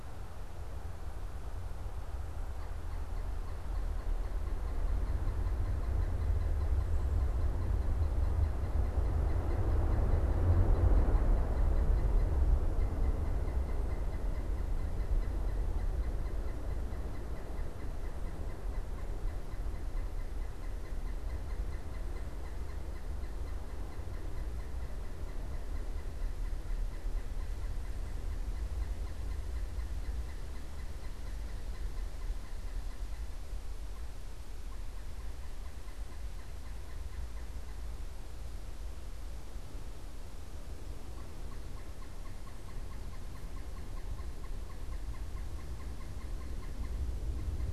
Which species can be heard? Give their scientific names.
Dryocopus pileatus